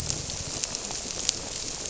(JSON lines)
{"label": "biophony", "recorder": "SoundTrap 300"}